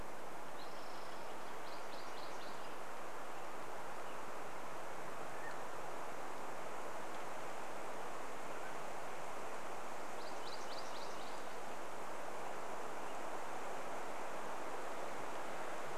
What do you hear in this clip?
Spotted Towhee song, MacGillivray's Warbler song, Mountain Quail call